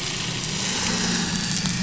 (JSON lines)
{"label": "anthrophony, boat engine", "recorder": "SoundTrap 500"}